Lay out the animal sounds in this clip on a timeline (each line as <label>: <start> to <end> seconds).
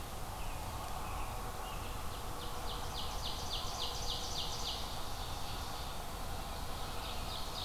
Red-eyed Vireo (Vireo olivaceus): 0.0 to 7.6 seconds
American Robin (Turdus migratorius): 0.3 to 2.0 seconds
Ovenbird (Seiurus aurocapilla): 1.7 to 7.6 seconds